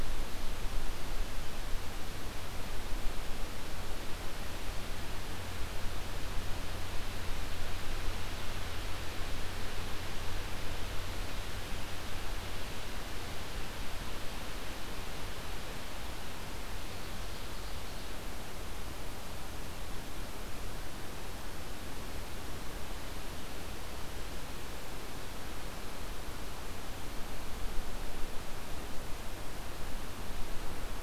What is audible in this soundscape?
Ovenbird